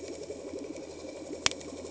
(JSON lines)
{"label": "anthrophony, boat engine", "recorder": "HydroMoth"}